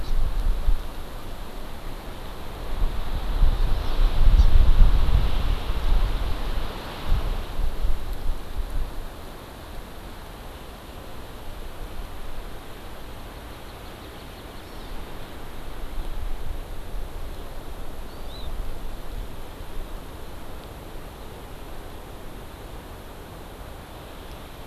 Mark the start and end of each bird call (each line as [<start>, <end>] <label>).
[0.00, 0.10] Hawaii Amakihi (Chlorodrepanis virens)
[3.70, 4.00] Hawaii Amakihi (Chlorodrepanis virens)
[4.40, 4.50] Hawaii Amakihi (Chlorodrepanis virens)
[13.30, 14.90] Hawaii Amakihi (Chlorodrepanis virens)
[18.10, 18.50] Hawaii Amakihi (Chlorodrepanis virens)